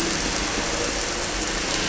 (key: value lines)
label: anthrophony, boat engine
recorder: SoundTrap 300